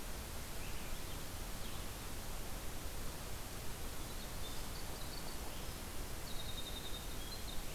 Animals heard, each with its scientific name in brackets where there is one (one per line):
Swainson's Thrush (Catharus ustulatus)
Winter Wren (Troglodytes hiemalis)